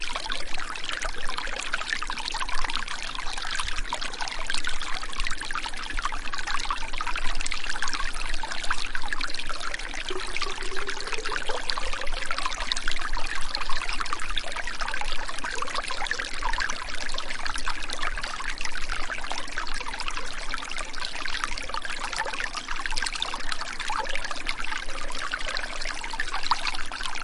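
A water stream flows and gradually grows louder. 0.0 - 27.2

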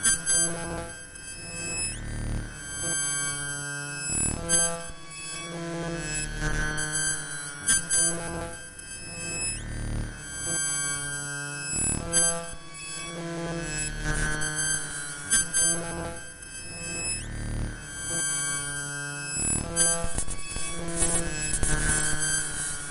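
An electronic beep with a high pitch that fluctuates in frequency. 0.0 - 16.1
A high-pitched electronic beep followed by coil whine creates a mix of electronic sounds. 18.1 - 22.9

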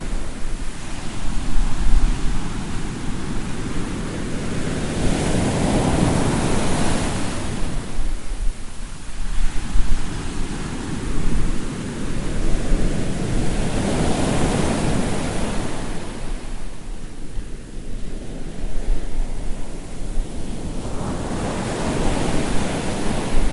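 Static sound with volume changing in waves. 0.0 - 23.5

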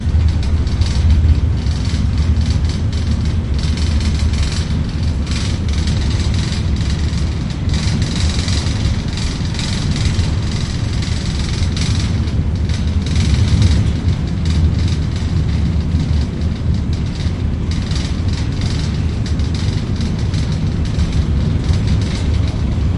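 Rattling of a bike engine. 0.0 - 22.9

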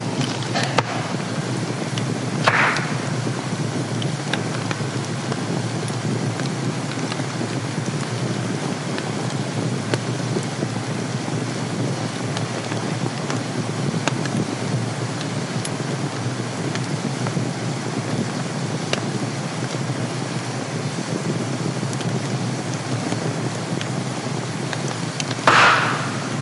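A campfire crackles steadily. 0.0 - 26.4

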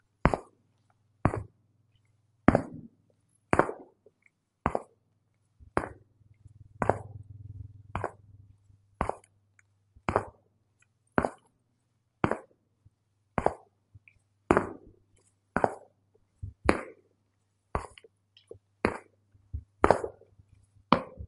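Consistent footsteps on a hard floor at one-second intervals. 0.0 - 21.3

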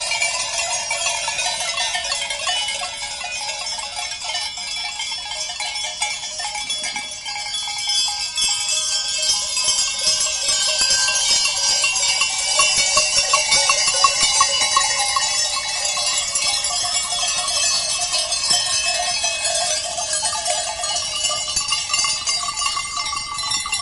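A flock of sheep grazes with the gentle ringing of a bell in the countryside. 0.1 - 23.5

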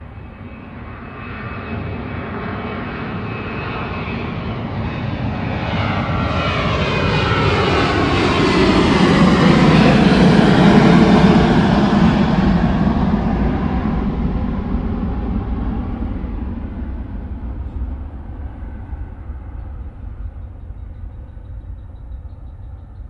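An airplane is landing or taking off, producing a loud and disturbing noise. 0.9 - 16.5

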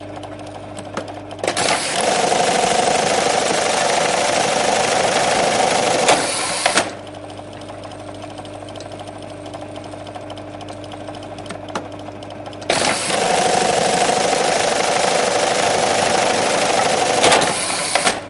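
Typical sounds of an industrial button factory. 0.0 - 1.4
A sewing machine operates loudly. 1.5 - 6.9
Typical sounds of an industrial button factory. 7.0 - 12.6
A sewing machine operates loudly. 12.7 - 18.3

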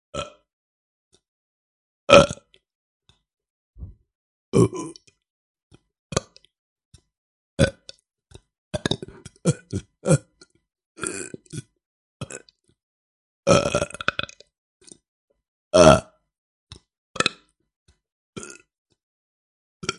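A man burps quietly. 0.0 - 0.3
A man burps loudly. 2.0 - 2.5
A man burps. 4.4 - 5.1
A man burps. 6.0 - 6.5
A man burps repeatedly with small pauses. 7.4 - 12.7
A man burps. 13.4 - 14.5
A man burps. 15.6 - 16.2
A man burps. 17.1 - 17.4
A man burps quietly. 18.3 - 18.6
A man burps quietly. 19.8 - 20.0

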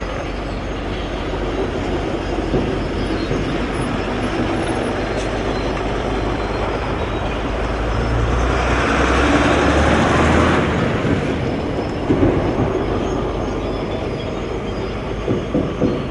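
A heavy vehicle is driving from nearby to the distance. 0.0 - 16.1

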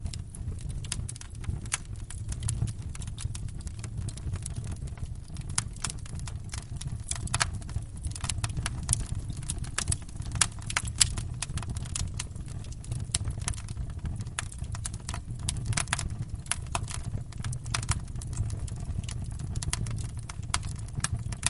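Firewood cracking repeatedly. 0.0 - 21.5

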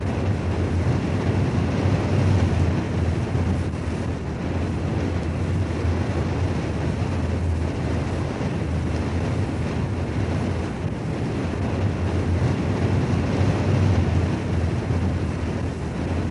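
Loud fast wind blowing. 0.0 - 16.3

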